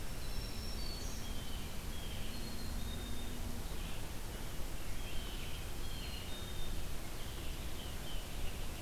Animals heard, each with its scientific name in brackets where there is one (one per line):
Blue Jay (Cyanocitta cristata)
Winter Wren (Troglodytes hiemalis)
Black-capped Chickadee (Poecile atricapillus)
Red-eyed Vireo (Vireo olivaceus)
Black-throated Green Warbler (Setophaga virens)